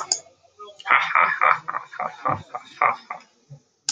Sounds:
Laughter